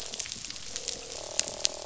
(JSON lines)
{"label": "biophony, croak", "recorder": "SoundTrap 500"}